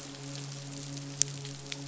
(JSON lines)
{"label": "biophony, midshipman", "recorder": "SoundTrap 500"}